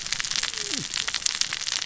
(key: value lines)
label: biophony, cascading saw
recorder: SoundTrap 600 or HydroMoth